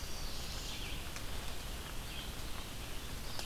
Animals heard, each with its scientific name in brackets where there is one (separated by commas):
Chestnut-sided Warbler (Setophaga pensylvanica), Red-eyed Vireo (Vireo olivaceus)